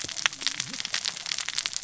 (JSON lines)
{"label": "biophony, cascading saw", "recorder": "SoundTrap 600 or HydroMoth"}